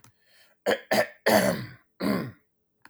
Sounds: Throat clearing